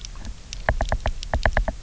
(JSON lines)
{"label": "biophony, knock", "recorder": "SoundTrap 300"}